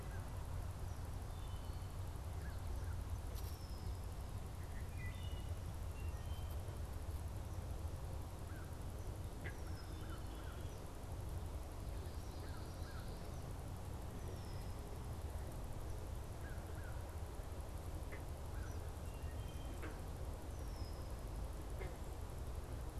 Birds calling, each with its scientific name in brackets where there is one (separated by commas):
American Crow (Corvus brachyrhynchos), Wood Thrush (Hylocichla mustelina), Red-winged Blackbird (Agelaius phoeniceus)